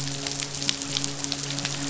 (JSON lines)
{"label": "biophony, midshipman", "recorder": "SoundTrap 500"}